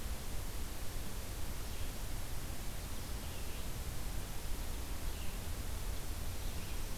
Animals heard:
forest ambience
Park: Acadia National Park